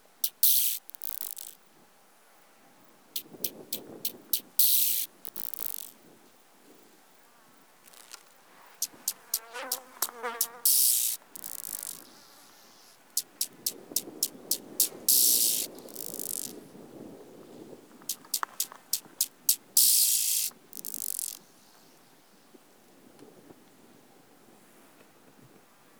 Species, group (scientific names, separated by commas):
Arcyptera tornosi, Orthoptera